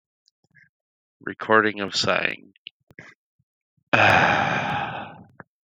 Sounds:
Sigh